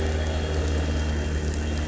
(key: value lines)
label: anthrophony, boat engine
recorder: SoundTrap 300